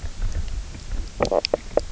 {"label": "biophony, knock croak", "recorder": "SoundTrap 300"}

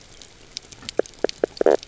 {"label": "biophony, knock croak", "recorder": "SoundTrap 300"}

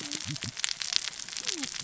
{"label": "biophony, cascading saw", "recorder": "SoundTrap 600 or HydroMoth"}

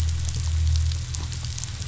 {"label": "anthrophony, boat engine", "recorder": "SoundTrap 500"}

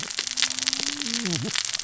{"label": "biophony, cascading saw", "recorder": "SoundTrap 600 or HydroMoth"}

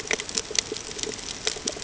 {"label": "ambient", "recorder": "HydroMoth"}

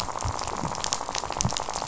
{"label": "biophony, rattle", "recorder": "SoundTrap 500"}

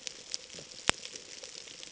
{"label": "ambient", "recorder": "HydroMoth"}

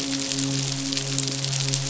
{"label": "biophony, midshipman", "recorder": "SoundTrap 500"}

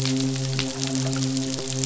{"label": "biophony, midshipman", "recorder": "SoundTrap 500"}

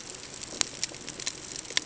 {"label": "ambient", "recorder": "HydroMoth"}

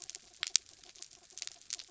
{"label": "anthrophony, mechanical", "recorder": "SoundTrap 300"}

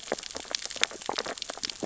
{"label": "biophony, sea urchins (Echinidae)", "recorder": "SoundTrap 600 or HydroMoth"}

